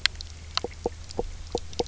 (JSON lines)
{"label": "biophony, knock croak", "recorder": "SoundTrap 300"}